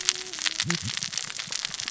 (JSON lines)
{"label": "biophony, cascading saw", "recorder": "SoundTrap 600 or HydroMoth"}